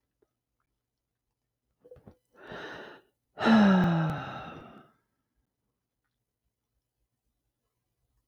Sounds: Sigh